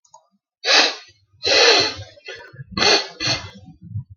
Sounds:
Sniff